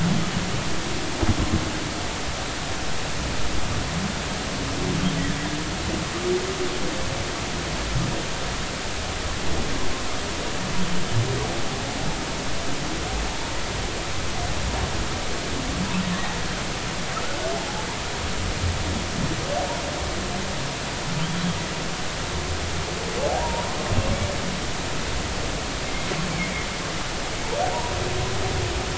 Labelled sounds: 23.4	23.8	humpback whale, 0.90 to 1.1 kHz
25.8	26.1	humpback whale, 2.1 to 2.2 kHz

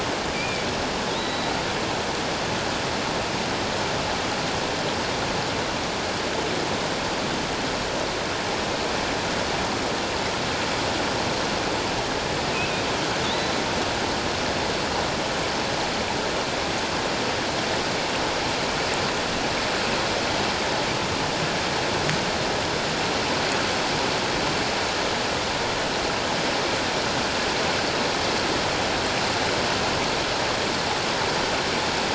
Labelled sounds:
0.3	0.7	killer whale, offshore, 2.2 to 2.5 kHz
1.1	1.5	killer whale, offshore, 3.5 to 4.0 kHz
13.2	13.5	killer whale, offshore, 3.4 to 4.0 kHz

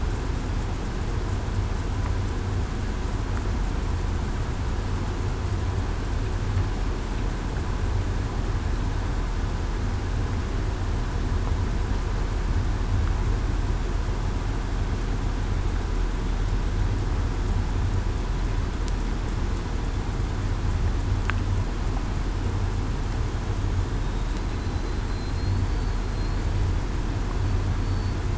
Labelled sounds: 27.8	28.2	killer whale, southern resident, 4.4 to 4.5 kHz

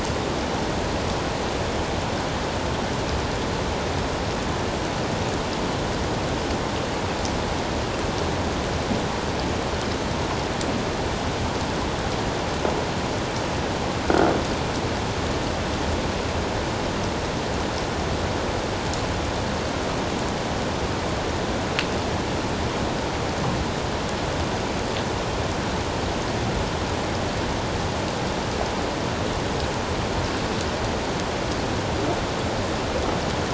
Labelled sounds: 14.0	14.3	croaking sound likely from a nearby submerged object, 1.3 to 1.5 kHz

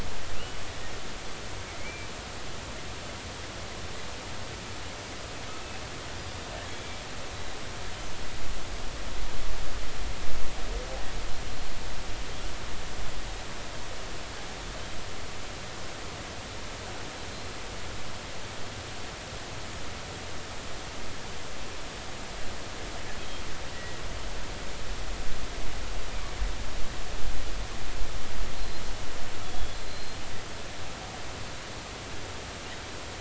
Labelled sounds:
0.4	0.6	killer whale, offshore, 2.6 to 3.0 kHz
1.8	2.1	killer whale, offshore, 2.1 to 2.4 kHz
6.6	7.0	killer whale, offshore, 2.1 to 3.5 kHz
23.7	24.0	killer whale, offshore, 1.9 to 2.0 kHz
28.6	28.8	killer whale, offshore, 4.1 to 4.2 kHz
29.4	30.2	killer whale, offshore, 3.3 to 4.3 kHz

